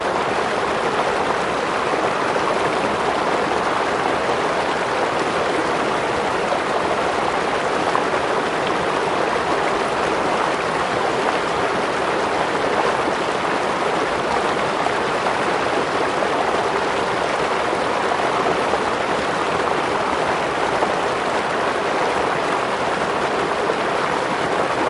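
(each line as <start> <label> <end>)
0.0 A continuous pure sound of water flowing from a river in the distance. 24.9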